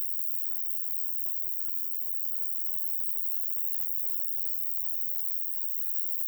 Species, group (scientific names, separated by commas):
Roeseliana roeselii, Orthoptera